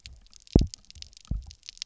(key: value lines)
label: biophony, double pulse
recorder: SoundTrap 300